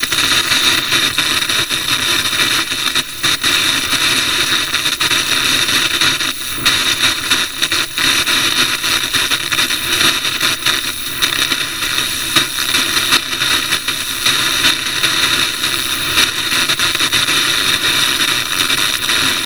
Does the machine pause?
no